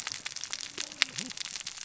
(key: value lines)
label: biophony, cascading saw
recorder: SoundTrap 600 or HydroMoth